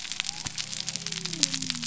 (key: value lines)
label: biophony
recorder: SoundTrap 300